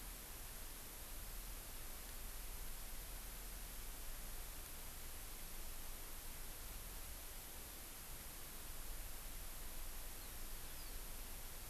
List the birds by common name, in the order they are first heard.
Eurasian Skylark